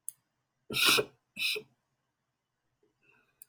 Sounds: Sniff